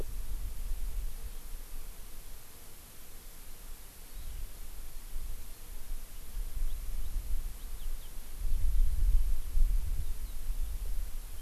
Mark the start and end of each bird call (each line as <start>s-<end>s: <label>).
4.1s-4.4s: Eurasian Skylark (Alauda arvensis)